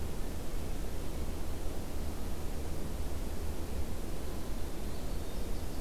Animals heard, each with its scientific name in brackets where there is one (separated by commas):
Winter Wren (Troglodytes hiemalis)